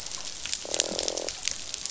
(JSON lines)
{"label": "biophony, croak", "recorder": "SoundTrap 500"}